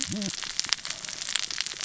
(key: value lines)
label: biophony, cascading saw
recorder: SoundTrap 600 or HydroMoth